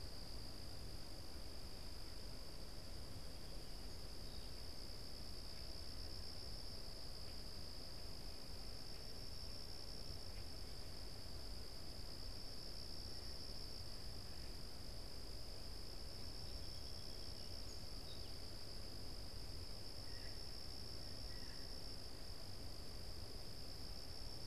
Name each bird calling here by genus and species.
Melospiza melodia, Cyanocitta cristata